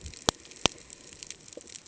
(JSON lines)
{"label": "ambient", "recorder": "HydroMoth"}